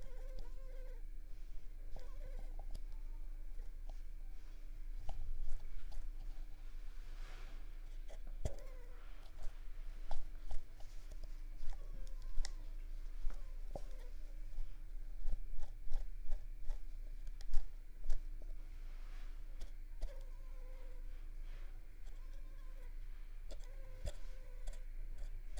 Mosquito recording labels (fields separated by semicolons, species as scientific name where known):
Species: Culex pipiens complex; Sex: female; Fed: unfed; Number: one; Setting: cup